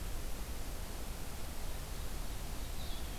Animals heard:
forest ambience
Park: Marsh-Billings-Rockefeller National Historical Park